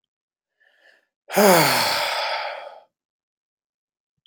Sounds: Sigh